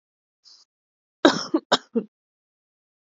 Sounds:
Cough